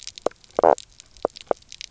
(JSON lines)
{"label": "biophony, knock croak", "recorder": "SoundTrap 300"}